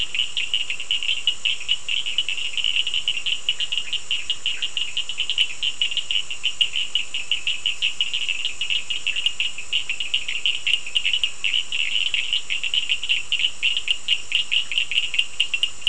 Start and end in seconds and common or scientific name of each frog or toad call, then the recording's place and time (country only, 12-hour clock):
0.0	15.8	Cochran's lime tree frog
4.6	4.8	Bischoff's tree frog
Brazil, 8:15pm